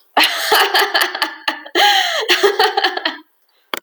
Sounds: Laughter